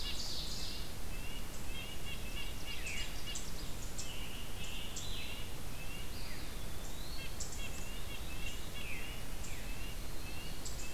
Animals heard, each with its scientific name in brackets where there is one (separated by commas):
Red-breasted Nuthatch (Sitta canadensis), Eastern Wood-Pewee (Contopus virens), Veery (Catharus fuscescens), Ovenbird (Seiurus aurocapilla), Scarlet Tanager (Piranga olivacea)